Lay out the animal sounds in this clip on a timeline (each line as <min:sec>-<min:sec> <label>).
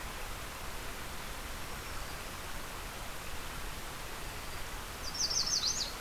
0:01.5-0:02.3 Black-throated Green Warbler (Setophaga virens)
0:04.1-0:04.7 Black-throated Green Warbler (Setophaga virens)
0:04.9-0:06.0 Yellow Warbler (Setophaga petechia)